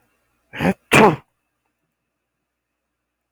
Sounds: Sneeze